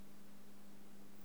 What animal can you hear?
Rhacocleis germanica, an orthopteran